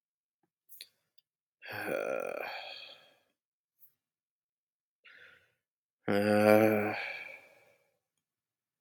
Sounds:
Sigh